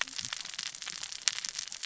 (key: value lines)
label: biophony, cascading saw
recorder: SoundTrap 600 or HydroMoth